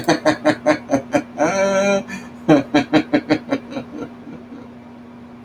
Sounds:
Laughter